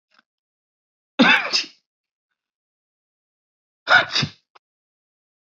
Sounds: Sneeze